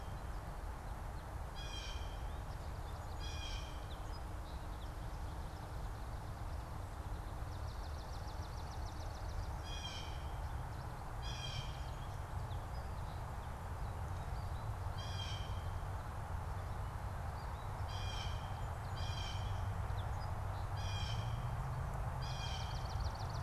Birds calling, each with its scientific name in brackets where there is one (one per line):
Blue Jay (Cyanocitta cristata)
Song Sparrow (Melospiza melodia)
Swamp Sparrow (Melospiza georgiana)